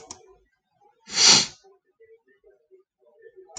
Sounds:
Sniff